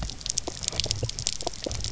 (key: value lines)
label: biophony
recorder: SoundTrap 300